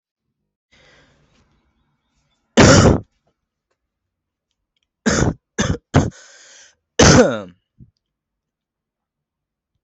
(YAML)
expert_labels:
- quality: ok
  cough_type: dry
  dyspnea: false
  wheezing: false
  stridor: false
  choking: false
  congestion: false
  nothing: true
  diagnosis: COVID-19
  severity: mild
gender: female
respiratory_condition: false
fever_muscle_pain: false
status: COVID-19